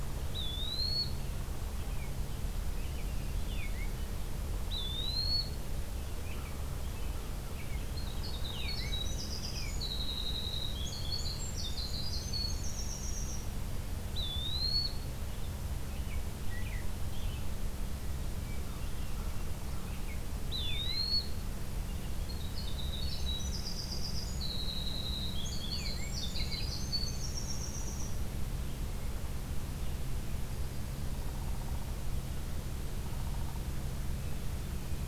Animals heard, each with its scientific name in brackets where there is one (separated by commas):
Eastern Wood-Pewee (Contopus virens), American Robin (Turdus migratorius), American Crow (Corvus brachyrhynchos), Downy Woodpecker (Dryobates pubescens), Hermit Thrush (Catharus guttatus), Winter Wren (Troglodytes hiemalis)